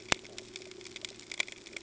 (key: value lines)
label: ambient
recorder: HydroMoth